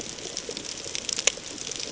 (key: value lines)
label: ambient
recorder: HydroMoth